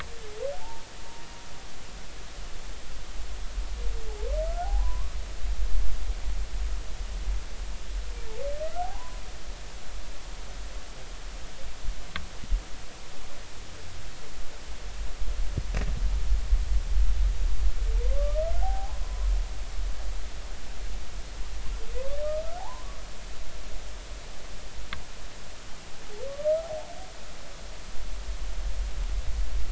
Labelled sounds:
0.6	0.8	humpback whale, 0.80 to 0.99 kHz
4.5	5.2	humpback whale, 0.80 to 1.5 kHz
8.8	9.2	humpback whale, 0.80 to 1.1 kHz
18.1	19.3	humpback whale, 0.80 to 1.2 kHz
22.6	23.0	humpback whale, 0.80 to 1.2 kHz
26.3	26.9	humpback whale, 0.80 to 1.3 kHz

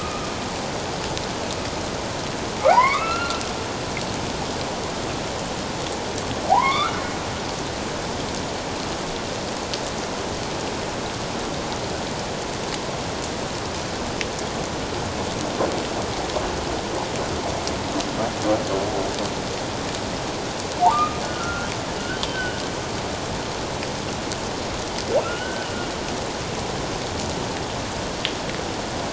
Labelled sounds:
2.7	3.4	humpback whale, 0.78 to 2.8 kHz
6.5	6.9	humpback whale, 0.78 to 3.7 kHz
20.8	21.7	humpback whale, 0.78 to 1.5 kHz
22.2	22.6	humpback whale, 2.8 to 3.2 kHz
25.2	25.7	humpback whale, 1.2 to 1.6 kHz

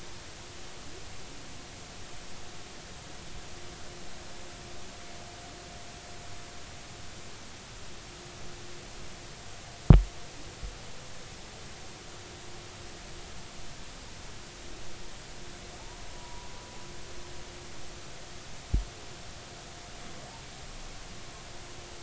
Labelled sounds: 16.1	16.5	humpback whale, 0.90 to 1.1 kHz

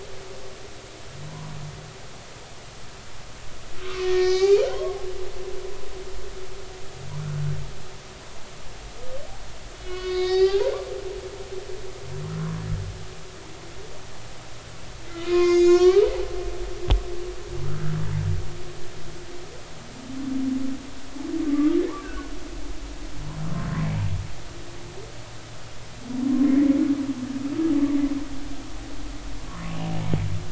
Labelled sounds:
1.3	1.5	humpback whale, 0.86 to 1.1 kHz
3.8	5.0	humpback whale, 0.93 to 2.5 kHz
9.8	10.6	humpback whale, 0.80 to 5.5 kHz
15.2	16.1	humpback whale, 0.96 to 6.7 kHz
17.6	18.0	humpback whale, 1.2 to 1.5 kHz
21.5	22.3	humpback whale, 1.1 to 1.7 kHz
29.6	29.9	humpback whale, 2.5 to 2.9 kHz

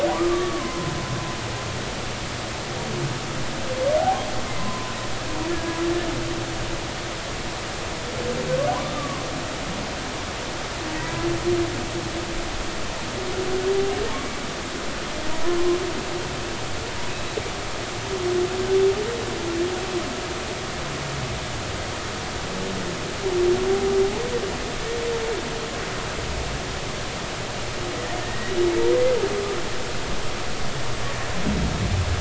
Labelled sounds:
0.1	0.9	humpback whale, 0.93 to 1.3 kHz
4.0	4.2	humpback whale, 0.80 to 0.90 kHz
4.6	5.8	humpback whale, 0.96 to 1.8 kHz
8.7	9.2	humpback whale, 0.96 to 1.3 kHz
11.0	11.2	humpback whale, 0.93 to 1.1 kHz
28.2	28.6	humpback whale, 1.8 to 2.0 kHz

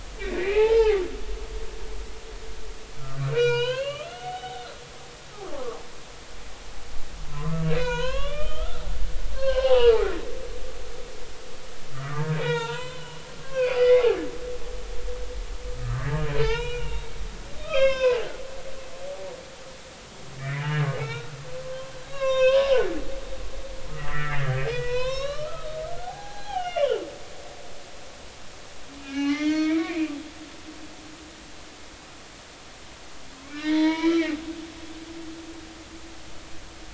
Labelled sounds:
0.2	1.1	humpback whale, 0.80 to 3.2 kHz
3.3	4.6	humpback whale, 0.80 to 5.4 kHz
5.5	5.8	humpback whale, 0.96 to 1.3 kHz
7.3	8.9	humpback whale, 0.90 to 4.3 kHz
9.3	10.1	humpback whale, 0.80 to 4.4 kHz
11.9	14.1	humpback whale, 0.86 to 4.8 kHz
15.7	18.2	humpback whale, 0.83 to 5.5 kHz
20.4	21.4	humpback whale, 1.3 to 3.0 kHz
22.1	23.0	humpback whale, 0.96 to 6.9 kHz
23.9	27.0	humpback whale, 0.80 to 5.6 kHz
29.0	30.3	humpback whale, 0.80 to 5.8 kHz
33.5	34.3	humpback whale, 0.86 to 4.2 kHz

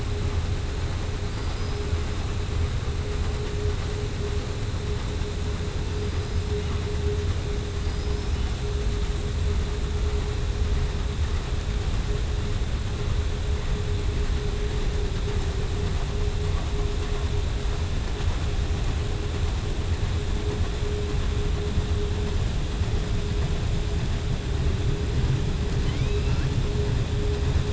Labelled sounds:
1.3	1.8	killer whale, southern resident, 4.5 to 5.9 kHz
7.8	8.3	killer whale, southern resident, 4.7 to 5.4 kHz
25.7	26.5	killer whale, southern resident, 0.96 to 5.1 kHz

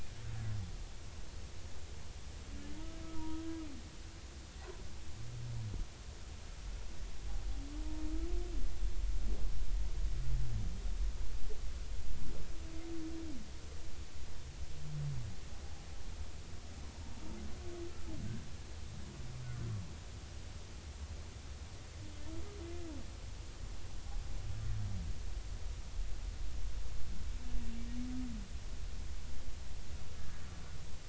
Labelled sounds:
3.1	3.4	humpback whale, 0.90 to 1.0 kHz
30.2	30.4	humpback whale, 1.6 to 1.8 kHz

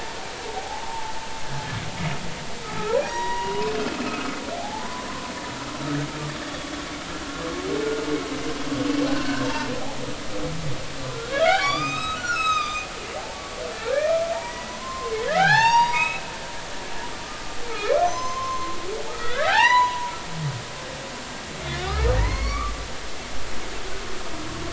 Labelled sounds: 0.3	1.1	humpback whale, 0.80 to 3.3 kHz
2.6	3.7	humpback whale, 0.90 to 5.8 kHz
4.0	5.1	humpback whale, 0.80 to 2.7 kHz
9.1	9.5	humpback whale, 1.4 to 1.6 kHz
11.4	12.9	humpback whale, 0.80 to 6.9 kHz
13.2	16.2	humpback whale, 0.80 to 7.6 kHz
18.0	20.1	humpback whale, 0.80 to 7.0 kHz
21.6	22.7	humpback whale, 0.90 to 3.9 kHz
23.3	23.6	humpback whale, 4.2 to 4.6 kHz

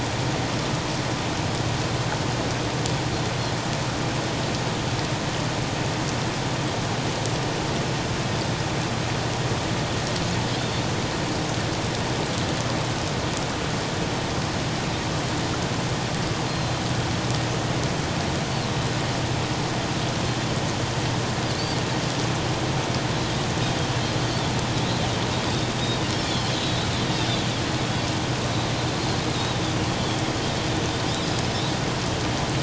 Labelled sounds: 16.5	16.8	Pacific white-sided dolphin, 4.0 to 4.2 kHz
26.5	26.9	Pacific white-sided dolphin, 3.8 to 4.0 kHz
31.1	31.4	Pacific white-sided dolphin, 3.9 to 4.0 kHz

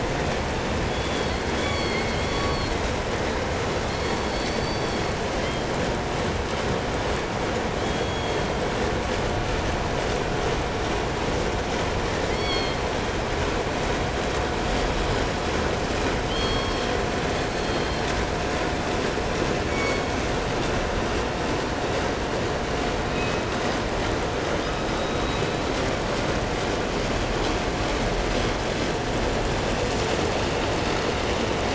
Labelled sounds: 0.8	2.8	killer whale, southern resident, call S16, 0.82 to 8.0 kHz
3.5	5.7	killer whale, southern resident, call S16, 1.6 to 8.0 kHz
7.8	8.9	killer whale, southern resident, call S16, 1.5 to 8.0 kHz
12.2	13.0	killer whale, southern resident, call S16, 1.6 to 8.0 kHz
16.1	18.3	killer whale, southern resident, call S16, 2.5 to 8.0 kHz
19.5	20.4	killer whale, southern resident, call S16, 2.0 to 8.0 kHz
23.0	24.0	killer whale, southern resident, call S17, 2.1 to 6.8 kHz
24.4	26.0	killer whale, southern resident, call S17, 1.9 to 5.6 kHz

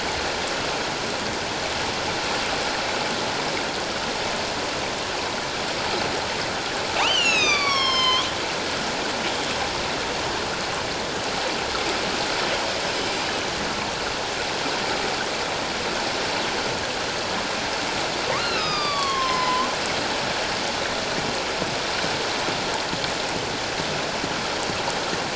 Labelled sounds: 7.0	8.3	killer whale, northern resident, A clan, AA subclan, A04 pod, call N04, 0.97 to 7.1 kHz
18.3	19.7	killer whale, northern resident, A clan, AA subclan, A04 pod, call N04, 0.94 to 5.4 kHz

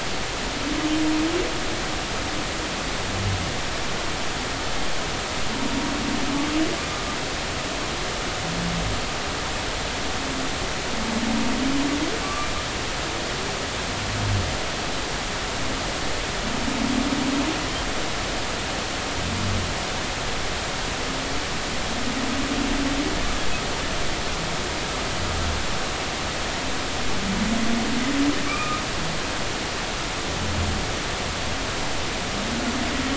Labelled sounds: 12.2	12.5	humpback whale, 1.1 to 1.2 kHz
28.5	28.8	humpback whale, 1.1 to 2.6 kHz

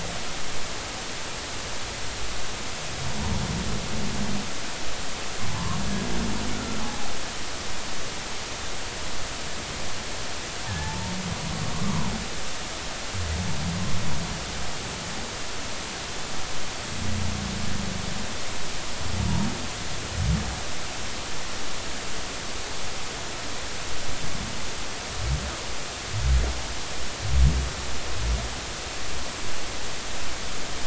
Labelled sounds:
5.5	5.8	humpback whale, 0.83 to 1.2 kHz
6.5	7.1	humpback whale, 0.80 to 1.5 kHz
10.7	11.1	humpback whale, 0.83 to 1.9 kHz
19.2	19.5	humpback whale, 0.86 to 0.99 kHz

